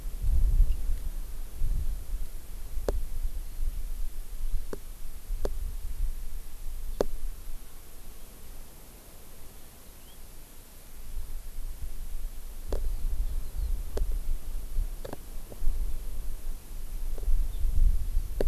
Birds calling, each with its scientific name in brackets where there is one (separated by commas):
House Finch (Haemorhous mexicanus)